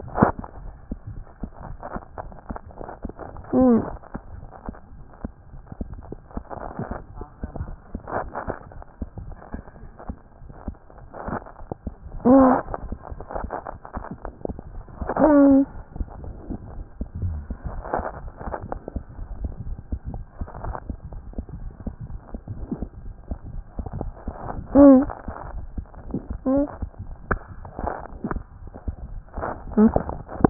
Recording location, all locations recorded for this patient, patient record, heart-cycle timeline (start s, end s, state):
mitral valve (MV)
aortic valve (AV)+mitral valve (MV)
#Age: Child
#Sex: Male
#Height: 79.0 cm
#Weight: 10.5 kg
#Pregnancy status: False
#Murmur: Unknown
#Murmur locations: nan
#Most audible location: nan
#Systolic murmur timing: nan
#Systolic murmur shape: nan
#Systolic murmur grading: nan
#Systolic murmur pitch: nan
#Systolic murmur quality: nan
#Diastolic murmur timing: nan
#Diastolic murmur shape: nan
#Diastolic murmur grading: nan
#Diastolic murmur pitch: nan
#Diastolic murmur quality: nan
#Outcome: Abnormal
#Campaign: 2014 screening campaign
0.00	18.89	unannotated
18.89	18.94	diastole
18.94	19.06	S1
19.06	19.18	systole
19.18	19.26	S2
19.26	19.40	diastole
19.40	19.54	S1
19.54	19.68	systole
19.68	19.76	S2
19.76	19.92	diastole
19.92	20.00	S1
20.00	20.14	systole
20.14	20.22	S2
20.22	20.38	diastole
20.38	20.48	S1
20.48	20.65	systole
20.65	20.72	S2
20.72	20.89	diastole
20.89	20.95	S1
20.95	21.12	systole
21.12	21.19	S2
21.19	21.38	diastole
21.38	21.44	S1
21.44	21.62	systole
21.62	21.70	S2
21.70	21.86	diastole
21.86	30.50	unannotated